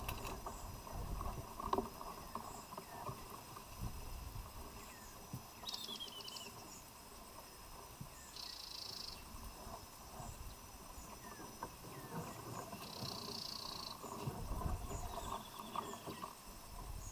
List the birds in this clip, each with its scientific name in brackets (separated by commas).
White-headed Woodhoopoe (Phoeniculus bollei), Spectacled Weaver (Ploceus ocularis), African Emerald Cuckoo (Chrysococcyx cupreus)